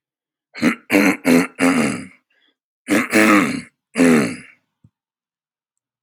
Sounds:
Throat clearing